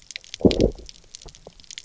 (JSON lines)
{"label": "biophony, low growl", "recorder": "SoundTrap 300"}